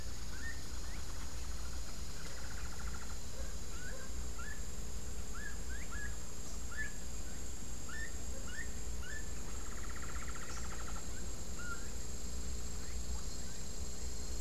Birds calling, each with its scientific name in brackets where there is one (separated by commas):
Gray-headed Chachalaca (Ortalis cinereiceps), Hoffmann's Woodpecker (Melanerpes hoffmannii)